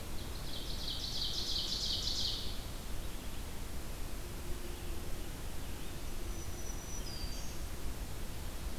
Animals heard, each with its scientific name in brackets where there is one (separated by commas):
Ovenbird (Seiurus aurocapilla), Black-throated Green Warbler (Setophaga virens)